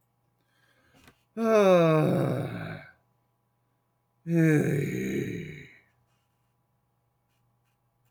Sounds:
Sigh